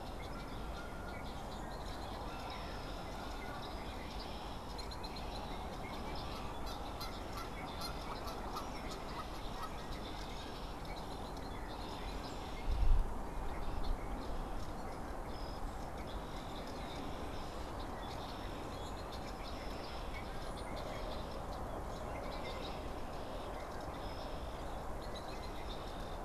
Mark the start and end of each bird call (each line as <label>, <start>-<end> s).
Red-winged Blackbird (Agelaius phoeniceus), 0.0-26.2 s
Canada Goose (Branta canadensis), 0.1-10.1 s
Brown-headed Cowbird (Molothrus ater), 20.3-20.9 s